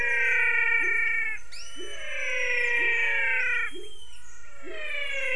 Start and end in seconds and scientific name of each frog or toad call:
0.0	5.2	Leptodactylus labyrinthicus
0.0	5.3	Physalaemus albonotatus